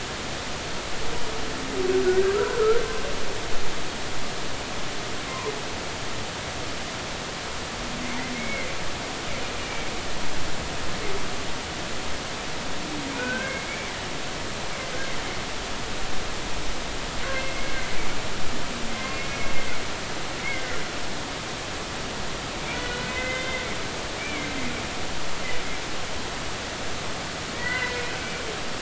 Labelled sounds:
2.0	2.8	humpback whale, 1.2 to 1.7 kHz
5.3	5.5	humpback whale, 0.90 to 1.1 kHz
8.3	8.7	humpback whale, 2.0 to 2.3 kHz
9.6	9.9	humpback whale, 2.2 to 2.4 kHz
13.1	13.7	humpback whale, 1.4 to 2.2 kHz
17.3	17.9	humpback whale, 2.0 to 2.2 kHz
19.1	19.5	humpback whale, 2.1 to 2.2 kHz
20.5	20.8	humpback whale, 1.3 to 1.7 kHz
22.7	23.6	humpback whale, 1.4 to 3.7 kHz
24.1	24.5	humpback whale, 2.0 to 2.6 kHz
27.5	28.0	humpback whale, 1.4 to 2.1 kHz

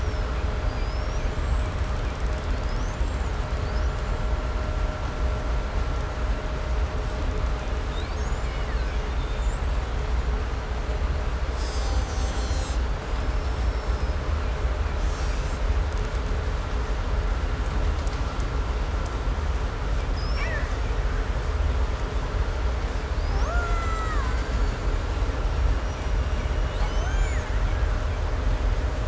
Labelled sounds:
0.1	4.5	killer whale, 1.4 to 8.0 kHz
5.8	10.0	killer whale, 1.3 to 8.0 kHz
11.4	14.2	killer whale, Bigg's (transient), call T15, 2.4 to 8.0 kHz
14.8	16.5	killer whale, 1.7 to 8.0 kHz
20.0	21.1	killer whale, 1.2 to 6.7 kHz
22.8	25.3	killer whale, Bigg's (transient), 0.36 to 8.0 kHz
25.1	28.4	killer whale, 0.55 to 8.0 kHz

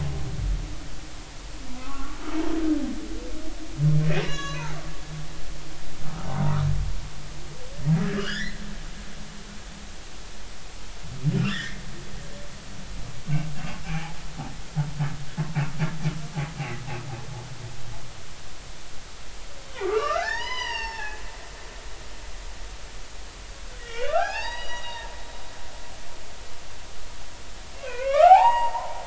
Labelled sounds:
1.8	2.2	humpback whale, 0.99 to 1.5 kHz
4.2	4.8	humpback whale, 0.80 to 6.9 kHz
6.0	6.3	humpback whale, 1.2 to 1.4 kHz
8.2	8.6	humpback whale, 1.1 to 5.4 kHz
11.4	11.8	humpback whale, 1.3 to 3.6 kHz
13.8	14.2	humpback whale, 0.80 to 2.6 kHz
16.6	16.8	humpback whale, 1.9 to 2.4 kHz
19.8	21.2	humpback whale, 0.80 to 6.1 kHz
23.8	25.1	humpback whale, 0.80 to 5.9 kHz
27.8	28.9	humpback whale, 0.80 to 4.8 kHz

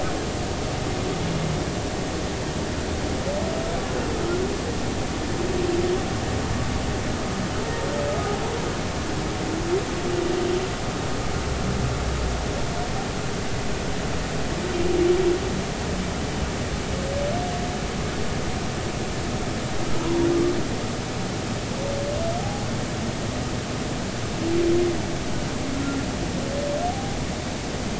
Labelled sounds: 22.4	22.7	humpback whale, 0.80 to 0.86 kHz
25.8	26.1	humpback whale, 1.3 to 1.4 kHz
26.9	27.2	humpback whale, 0.80 to 0.83 kHz

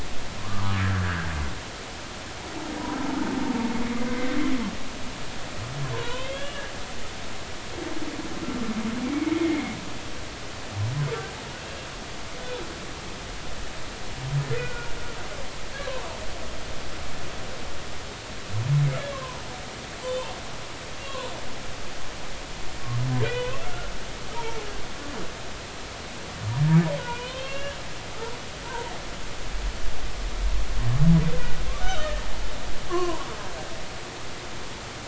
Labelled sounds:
0.4	1.3	humpback whale, 0.99 to 1.8 kHz
4.1	4.3	humpback whale, 1.9 to 2.1 kHz
5.9	6.6	humpback whale, 0.86 to 3.5 kHz
9.1	9.8	humpback whale, 2.0 to 2.3 kHz
14.5	14.9	humpback whale, 1.4 to 2.0 kHz
15.9	16.2	humpback whale, 0.86 to 1.1 kHz
19.1	19.4	humpback whale, 0.90 to 1.2 kHz
20.0	20.3	humpback whale, 3.0 to 3.2 kHz
21.0	21.3	humpback whale, 0.90 to 2.8 kHz
23.2	23.9	humpback whale, 0.93 to 2.0 kHz
24.3	24.6	humpback whale, 0.86 to 0.99 kHz
27.1	27.8	humpback whale, 0.90 to 3.3 kHz
28.6	28.9	humpback whale, 0.86 to 1.1 kHz
31.8	32.1	humpback whale, 1.2 to 6.2 kHz
32.9	33.2	humpback whale, 0.86 to 3.0 kHz

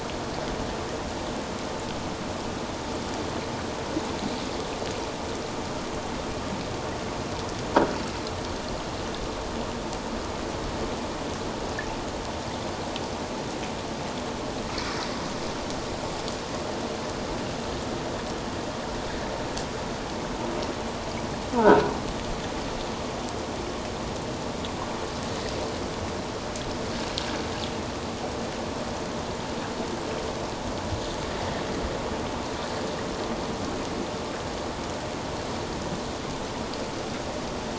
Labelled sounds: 14.7	15.0	water noise, 2.1 to 2.4 kHz

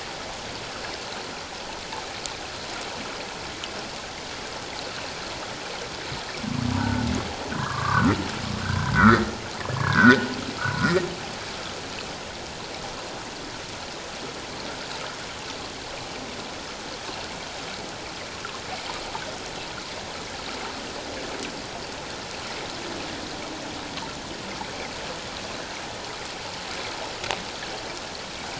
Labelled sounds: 6.8	8.1	humpback whale, 0.91 to 1.6 kHz
8.6	9.3	humpback whale, 1.1 to 2.1 kHz
9.8	11.0	humpback whale, 0.94 to 2.0 kHz

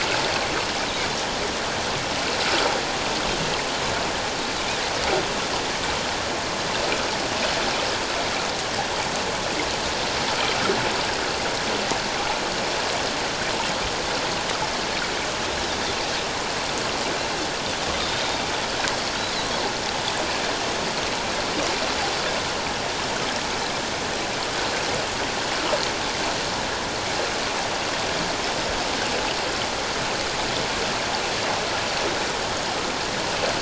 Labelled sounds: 17.9	18.4	Pacific white-sided dolphin, 3.5 to 3.8 kHz
19.2	19.5	Pacific white-sided dolphin, 3.8 to 4.2 kHz

